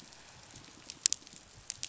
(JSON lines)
{"label": "biophony", "recorder": "SoundTrap 500"}